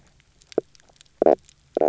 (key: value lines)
label: biophony, knock croak
recorder: SoundTrap 300